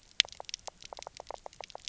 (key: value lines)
label: biophony, knock
recorder: SoundTrap 300